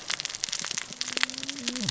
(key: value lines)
label: biophony, cascading saw
recorder: SoundTrap 600 or HydroMoth